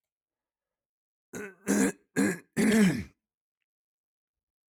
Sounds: Throat clearing